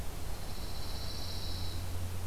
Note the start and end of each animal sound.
0.2s-2.0s: Pine Warbler (Setophaga pinus)

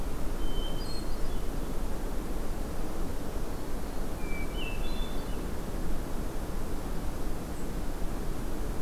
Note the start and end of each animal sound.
0.2s-1.5s: Hermit Thrush (Catharus guttatus)
0.8s-1.1s: White-throated Sparrow (Zonotrichia albicollis)
4.1s-5.5s: Hermit Thrush (Catharus guttatus)
7.5s-7.8s: White-throated Sparrow (Zonotrichia albicollis)

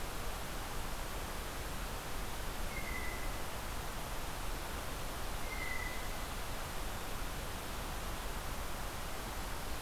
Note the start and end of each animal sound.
2.6s-3.4s: Blue Jay (Cyanocitta cristata)
5.4s-6.2s: Blue Jay (Cyanocitta cristata)

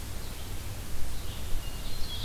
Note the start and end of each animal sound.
0.0s-2.2s: Red-eyed Vireo (Vireo olivaceus)
1.3s-2.2s: Ovenbird (Seiurus aurocapilla)

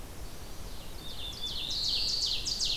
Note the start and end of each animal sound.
0.0s-0.9s: Chestnut-sided Warbler (Setophaga pensylvanica)
0.6s-2.8s: Ovenbird (Seiurus aurocapilla)
0.9s-2.5s: Black-throated Blue Warbler (Setophaga caerulescens)

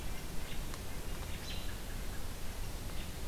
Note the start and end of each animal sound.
1.2s-1.8s: American Robin (Turdus migratorius)

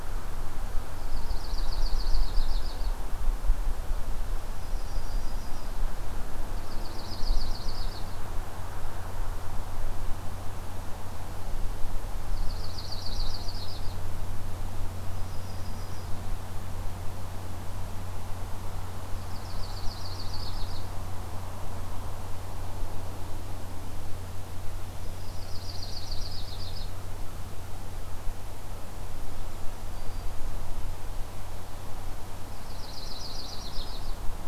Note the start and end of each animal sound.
0.9s-3.0s: Yellow-rumped Warbler (Setophaga coronata)
4.4s-5.8s: Yellow-rumped Warbler (Setophaga coronata)
6.5s-8.2s: Yellow-rumped Warbler (Setophaga coronata)
12.3s-14.0s: Yellow-rumped Warbler (Setophaga coronata)
15.0s-16.3s: Yellow-rumped Warbler (Setophaga coronata)
19.0s-20.8s: Yellow-rumped Warbler (Setophaga coronata)
19.3s-19.9s: Golden-crowned Kinglet (Regulus satrapa)
25.0s-26.9s: Yellow-rumped Warbler (Setophaga coronata)
28.9s-29.8s: Golden-crowned Kinglet (Regulus satrapa)
29.9s-30.4s: Black-throated Green Warbler (Setophaga virens)
32.5s-34.1s: Yellow-rumped Warbler (Setophaga coronata)

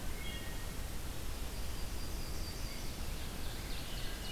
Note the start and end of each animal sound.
0.0s-0.9s: Wood Thrush (Hylocichla mustelina)
0.8s-3.3s: Yellow-rumped Warbler (Setophaga coronata)
2.7s-4.3s: Ovenbird (Seiurus aurocapilla)

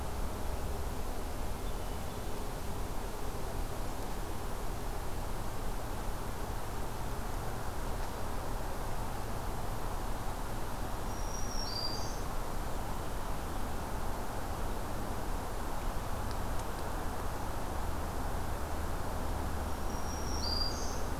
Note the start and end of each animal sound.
1.2s-2.5s: Hermit Thrush (Catharus guttatus)
10.9s-12.5s: Black-throated Green Warbler (Setophaga virens)
19.5s-21.2s: Black-throated Green Warbler (Setophaga virens)

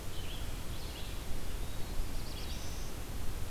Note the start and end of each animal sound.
0.0s-1.5s: Blue-headed Vireo (Vireo solitarius)
0.0s-3.5s: Red-eyed Vireo (Vireo olivaceus)
2.0s-3.0s: Black-throated Blue Warbler (Setophaga caerulescens)

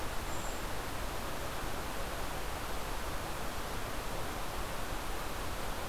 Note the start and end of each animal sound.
0.0s-1.1s: Golden-crowned Kinglet (Regulus satrapa)

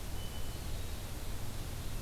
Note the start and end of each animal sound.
0.0s-1.5s: Hermit Thrush (Catharus guttatus)

